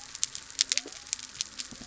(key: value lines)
label: biophony
recorder: SoundTrap 300